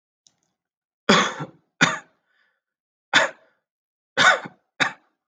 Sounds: Cough